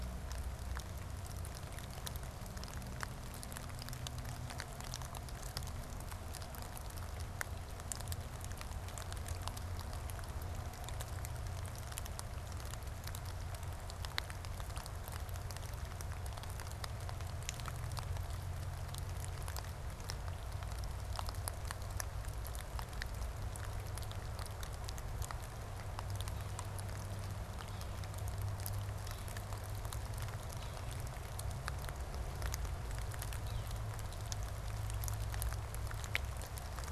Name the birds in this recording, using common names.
Yellow-bellied Sapsucker